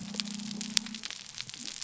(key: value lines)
label: biophony
recorder: SoundTrap 300